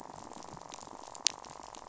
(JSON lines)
{"label": "biophony, rattle", "recorder": "SoundTrap 500"}